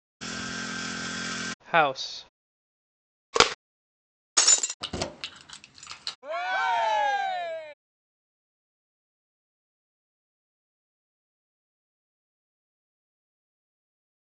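At 0.2 seconds, the sound of a chainsaw is heard. Then, at 1.74 seconds, a voice says "house." Afterwards, at 3.33 seconds, you can hear an object falling. Later, at 4.37 seconds, glass shatters. Following that, at 4.8 seconds, keys jangle. Finally, at 6.22 seconds, there is cheering.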